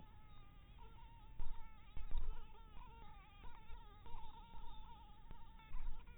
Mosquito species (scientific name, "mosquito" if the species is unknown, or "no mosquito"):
Anopheles maculatus